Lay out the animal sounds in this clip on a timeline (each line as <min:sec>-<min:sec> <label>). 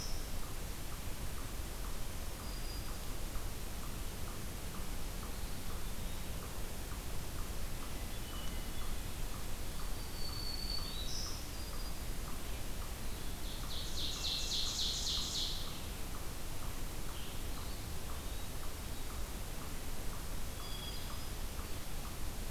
0:02.0-0:03.7 Black-throated Green Warbler (Setophaga virens)
0:05.1-0:06.3 Eastern Wood-Pewee (Contopus virens)
0:07.8-0:09.2 Hermit Thrush (Catharus guttatus)
0:09.5-0:12.2 Black-throated Green Warbler (Setophaga virens)
0:13.1-0:15.8 Ovenbird (Seiurus aurocapilla)
0:13.9-0:15.1 Hermit Thrush (Catharus guttatus)
0:17.3-0:18.6 Eastern Wood-Pewee (Contopus virens)
0:20.4-0:21.5 Hermit Thrush (Catharus guttatus)